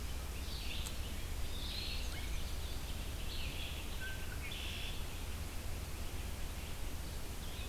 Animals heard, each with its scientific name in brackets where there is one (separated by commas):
Red-winged Blackbird (Agelaius phoeniceus), Red-eyed Vireo (Vireo olivaceus), Eastern Wood-Pewee (Contopus virens)